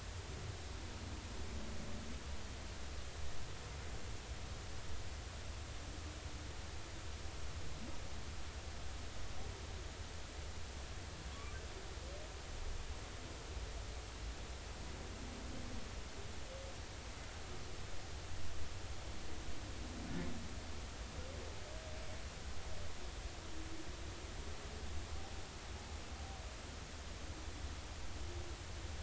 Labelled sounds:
11.3	11.6	humpback whale, 1.1 to 1.2 kHz

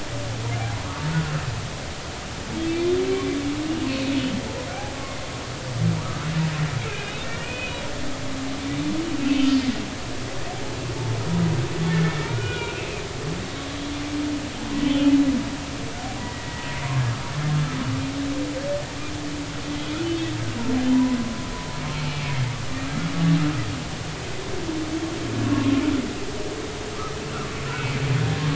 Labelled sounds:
2.7	2.9	humpback whale, 2.3 to 2.5 kHz
3.9	4.1	humpback whale, 2.4 to 2.7 kHz
6.9	7.8	humpback whale, 2.3 to 2.6 kHz
9.2	9.5	humpback whale, 2.5 to 2.8 kHz
12.0	12.8	humpback whale, 1.3 to 2.5 kHz
14.8	15.1	humpback whale, 2.9 to 3.2 kHz
16.2	16.7	humpback whale, 1.9 to 2.0 kHz
20.9	21.2	humpback whale, 0.90 to 1.1 kHz
22.1	22.3	humpback whale, 2.3 to 2.4 kHz
25.4	25.7	humpback whale, 1.0 to 1.2 kHz
27.7	28.0	humpback whale, 2.2 to 2.8 kHz

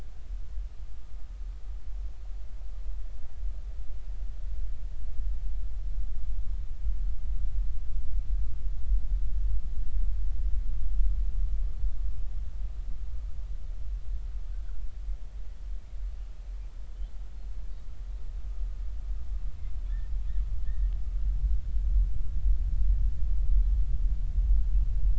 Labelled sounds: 20.7	20.9	humpback whale, 1.6 to 1.9 kHz

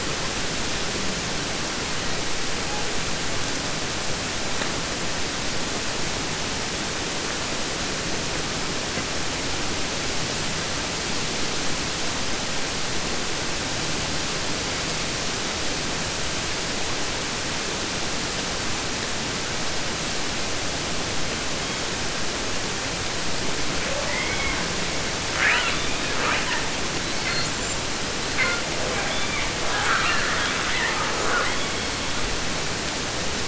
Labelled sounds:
23.8	24.7	killer whale, southern resident, J pod, call S44, 0.23 to 3.9 kHz
25.3	26.7	killer whale, southern resident, 0.16 to 5.8 kHz
27.0	27.8	killer whale, southern resident, J pod, call S42, 0.50 to 8.0 kHz
28.2	28.7	killer whale, southern resident, J pod, call S42, 0.20 to 8.0 kHz
28.8	32.2	killer whale, southern resident, 0.19 to 8.0 kHz

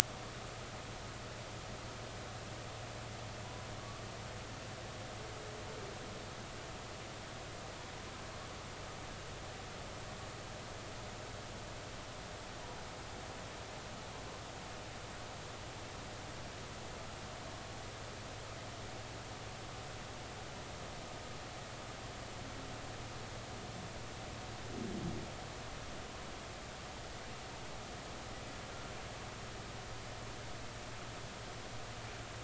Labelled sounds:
3.8	4.0	humpback whale, 1.1 to 1.2 kHz

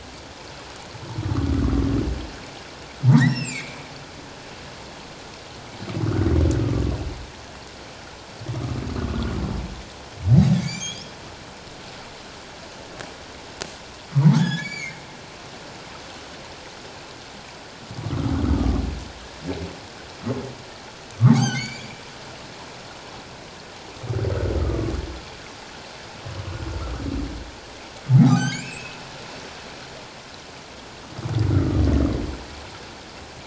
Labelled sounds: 3.1	3.9	humpback whale, 1.7 to 8.0 kHz
9.0	9.3	humpback whale, 1.3 to 1.5 kHz
10.5	11.1	humpback whale, 2.0 to 6.7 kHz
14.2	15.0	humpback whale, 0.78 to 7.1 kHz
18.1	18.4	humpback whale, 1.0 to 1.5 kHz
21.3	21.9	humpback whale, 0.78 to 7.4 kHz
24.6	24.9	humpback whale, 1.1 to 1.3 kHz
28.1	29.0	humpback whale, 0.78 to 7.5 kHz
31.5	31.8	humpback whale, 1.1 to 1.5 kHz

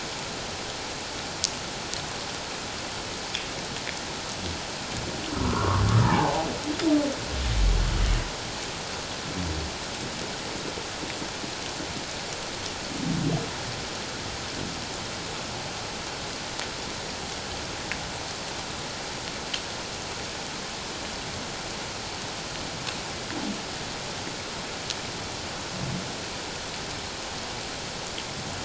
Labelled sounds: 5.4	6.5	humpback whale, 0.78 to 1.5 kHz

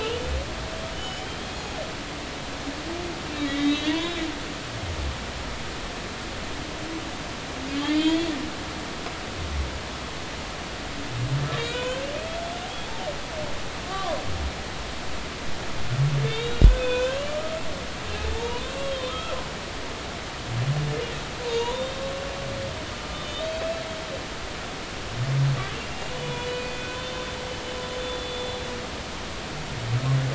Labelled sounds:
0.0	1.6	humpback whale, 2.6 to 6.9 kHz
3.3	4.2	humpback whale, 1.9 to 3.9 kHz
7.9	8.3	humpback whale, 3.0 to 4.4 kHz
11.6	12.1	humpback whale, 1.4 to 3.2 kHz
13.8	14.2	humpback whale, 0.93 to 1.2 kHz
16.2	17.6	humpback whale, 1.1 to 3.9 kHz
18.3	19.3	humpback whale, 0.86 to 3.9 kHz
21.4	22.0	humpback whale, 0.86 to 6.9 kHz
23.1	23.8	humpback whale, 2.4 to 3.9 kHz
26.2	28.5	humpback whale, 2.4 to 4.5 kHz

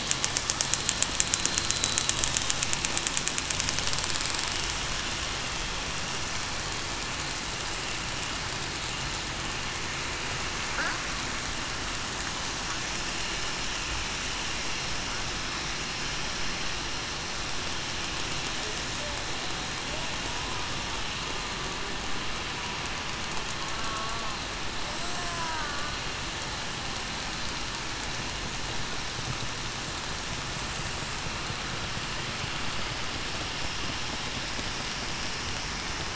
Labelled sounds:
1.7	2.2	killer whale, southern resident, 3.8 to 4.1 kHz
25.2	25.7	killer whale, southern resident, 0.89 to 1.1 kHz

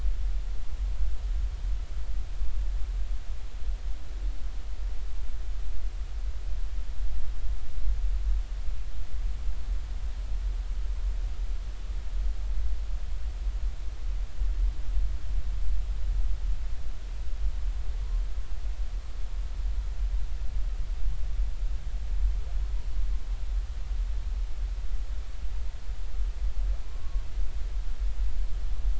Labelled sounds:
26.8	27.2	humpback whale, 0.96 to 1.2 kHz

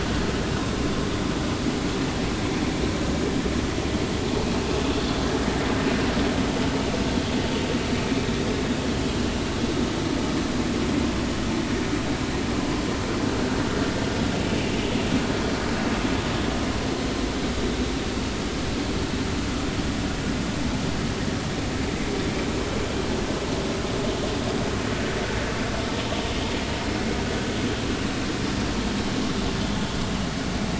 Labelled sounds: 7.9	8.3	vessel noise, 2.3 to 2.4 kHz

